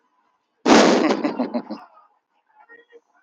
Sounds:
Laughter